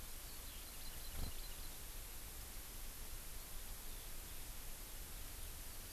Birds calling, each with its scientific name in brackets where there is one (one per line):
Eurasian Skylark (Alauda arvensis)
Hawaii Amakihi (Chlorodrepanis virens)